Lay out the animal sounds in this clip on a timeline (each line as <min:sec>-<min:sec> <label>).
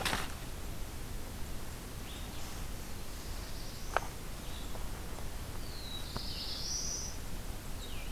0:00.0-0:08.1 Blue-headed Vireo (Vireo solitarius)
0:02.6-0:04.2 Black-throated Blue Warbler (Setophaga caerulescens)
0:05.3-0:07.4 Black-throated Blue Warbler (Setophaga caerulescens)